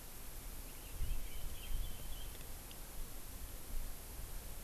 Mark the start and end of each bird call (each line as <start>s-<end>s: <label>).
0.5s-2.5s: Chinese Hwamei (Garrulax canorus)